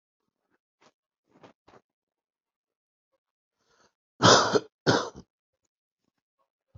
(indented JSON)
{
  "expert_labels": [
    {
      "quality": "good",
      "cough_type": "dry",
      "dyspnea": false,
      "wheezing": false,
      "stridor": false,
      "choking": false,
      "congestion": false,
      "nothing": true,
      "diagnosis": "healthy cough",
      "severity": "pseudocough/healthy cough"
    }
  ],
  "age": 50,
  "gender": "male",
  "respiratory_condition": false,
  "fever_muscle_pain": false,
  "status": "healthy"
}